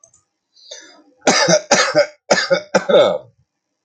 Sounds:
Cough